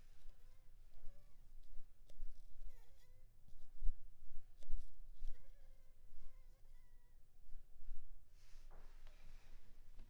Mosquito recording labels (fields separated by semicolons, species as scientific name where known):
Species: Anopheles funestus s.s.; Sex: female; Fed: unfed; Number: one; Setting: cup